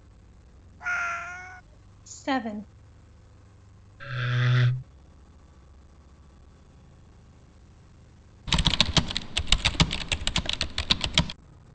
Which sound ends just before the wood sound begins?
speech